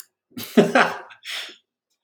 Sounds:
Laughter